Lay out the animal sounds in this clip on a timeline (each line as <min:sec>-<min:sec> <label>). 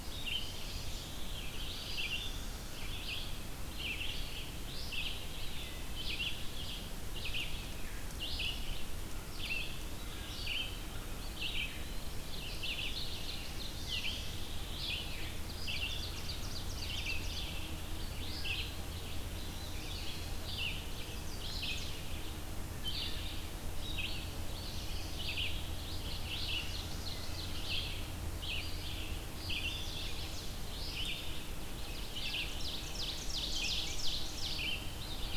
0:00.0-0:35.4 Red-eyed Vireo (Vireo olivaceus)
0:15.3-0:17.8 Ovenbird (Seiurus aurocapilla)
0:20.8-0:22.0 Chestnut-sided Warbler (Setophaga pensylvanica)
0:25.8-0:27.5 Chestnut-sided Warbler (Setophaga pensylvanica)
0:29.4-0:30.7 Chestnut-sided Warbler (Setophaga pensylvanica)
0:32.2-0:34.7 Ovenbird (Seiurus aurocapilla)